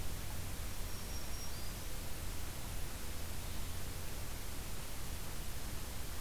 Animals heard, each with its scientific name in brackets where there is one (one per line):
Black-throated Green Warbler (Setophaga virens)